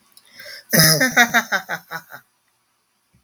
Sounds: Laughter